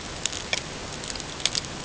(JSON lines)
{"label": "ambient", "recorder": "HydroMoth"}